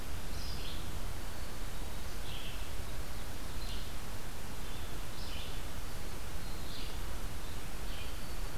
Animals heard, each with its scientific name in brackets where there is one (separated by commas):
Red-eyed Vireo (Vireo olivaceus), Black-capped Chickadee (Poecile atricapillus)